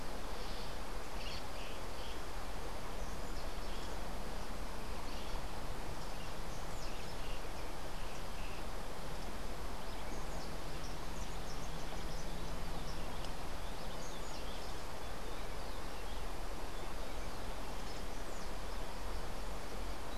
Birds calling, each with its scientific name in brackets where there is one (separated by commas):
Rufous-breasted Wren (Pheugopedius rutilus), Cabanis's Wren (Cantorchilus modestus)